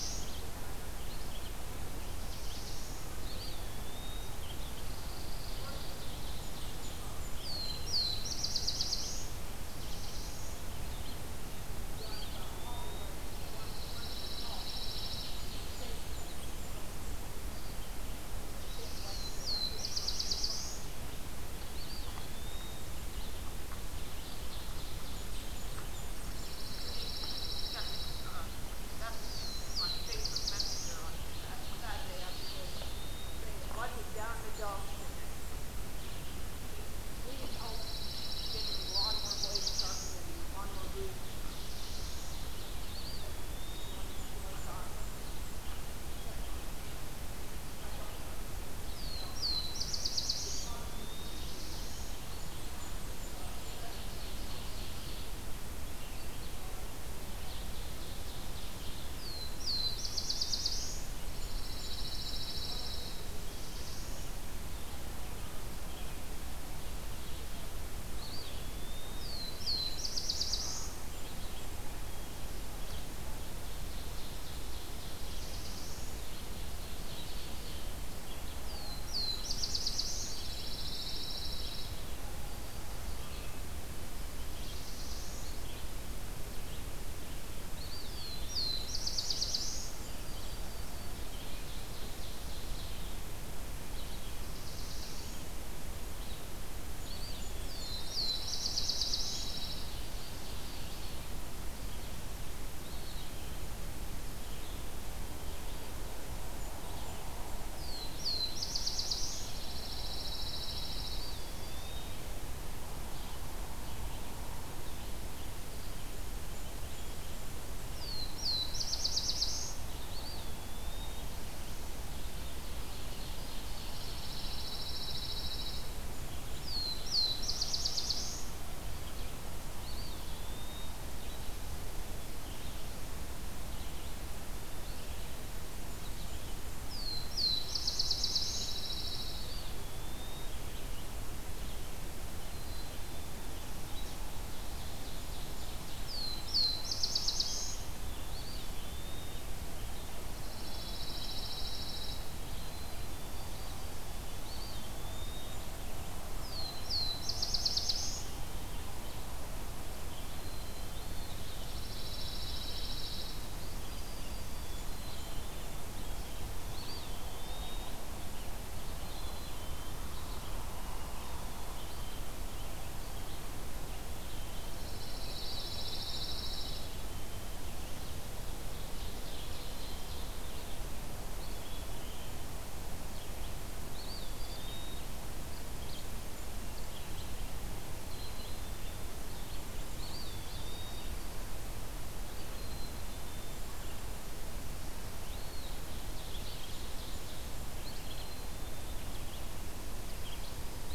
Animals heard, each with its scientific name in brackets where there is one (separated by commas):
Red-eyed Vireo (Vireo olivaceus), Black-throated Blue Warbler (Setophaga caerulescens), Yellow-rumped Warbler (Setophaga coronata), Ovenbird (Seiurus aurocapilla), Black-throated Green Warbler (Setophaga virens), Black-capped Chickadee (Poecile atricapillus), Eastern Wood-Pewee (Contopus virens), Blackburnian Warbler (Setophaga fusca), Pine Warbler (Setophaga pinus)